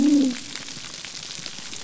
{"label": "biophony", "recorder": "SoundTrap 300"}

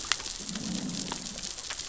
{"label": "biophony, growl", "recorder": "SoundTrap 600 or HydroMoth"}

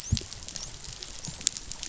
{"label": "biophony, dolphin", "recorder": "SoundTrap 500"}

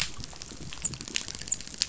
{"label": "biophony, dolphin", "recorder": "SoundTrap 500"}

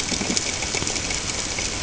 {"label": "ambient", "recorder": "HydroMoth"}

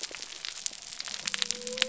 {"label": "biophony", "recorder": "SoundTrap 300"}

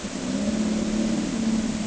{"label": "anthrophony, boat engine", "recorder": "HydroMoth"}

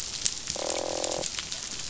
{"label": "biophony, croak", "recorder": "SoundTrap 500"}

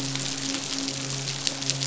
{"label": "biophony, midshipman", "recorder": "SoundTrap 500"}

